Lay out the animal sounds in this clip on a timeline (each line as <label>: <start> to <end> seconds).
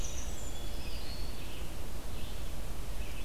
Winter Wren (Troglodytes hiemalis): 0.0 to 0.9 seconds
Red-eyed Vireo (Vireo olivaceus): 0.0 to 3.2 seconds